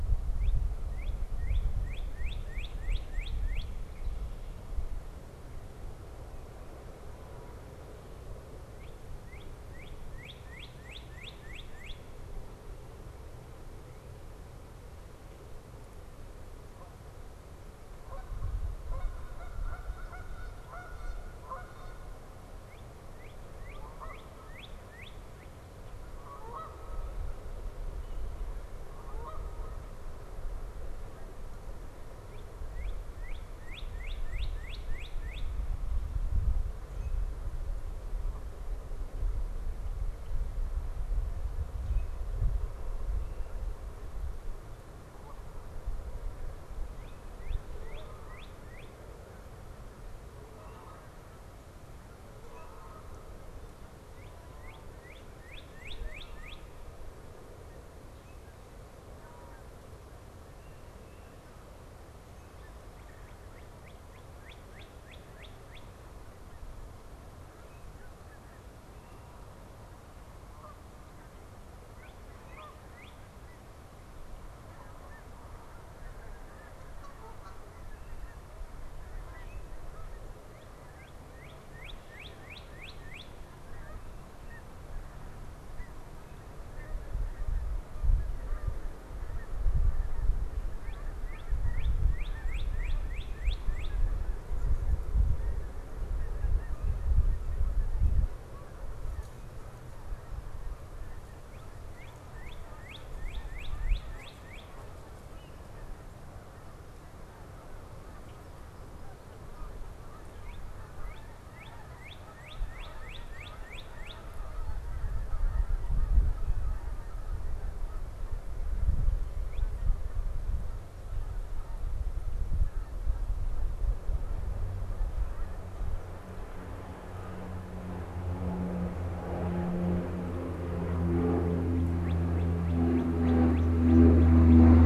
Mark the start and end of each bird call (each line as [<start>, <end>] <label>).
[0.00, 3.90] Northern Cardinal (Cardinalis cardinalis)
[8.50, 12.10] Northern Cardinal (Cardinalis cardinalis)
[16.60, 30.40] Canada Goose (Branta canadensis)
[18.90, 20.60] American Crow (Corvus brachyrhynchos)
[22.60, 25.70] Northern Cardinal (Cardinalis cardinalis)
[32.20, 35.60] Northern Cardinal (Cardinalis cardinalis)
[43.30, 60.20] Canada Goose (Branta canadensis)
[46.70, 49.00] Northern Cardinal (Cardinalis cardinalis)
[54.00, 56.70] Northern Cardinal (Cardinalis cardinalis)
[63.00, 66.00] Northern Cardinal (Cardinalis cardinalis)
[70.10, 72.70] Canada Goose (Branta canadensis)
[71.80, 73.30] Northern Cardinal (Cardinalis cardinalis)
[74.50, 79.80] Canada Goose (Branta canadensis)
[80.10, 83.50] Northern Cardinal (Cardinalis cardinalis)
[83.50, 126.40] Canada Goose (Branta canadensis)
[90.50, 94.10] Northern Cardinal (Cardinalis cardinalis)
[101.30, 104.80] Northern Cardinal (Cardinalis cardinalis)
[110.30, 114.30] Northern Cardinal (Cardinalis cardinalis)
[130.70, 134.80] Northern Cardinal (Cardinalis cardinalis)